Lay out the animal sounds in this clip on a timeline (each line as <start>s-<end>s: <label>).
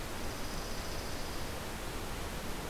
0.1s-1.6s: Dark-eyed Junco (Junco hyemalis)